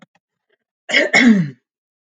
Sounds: Cough